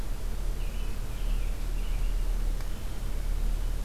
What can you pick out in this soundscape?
American Robin, Hermit Thrush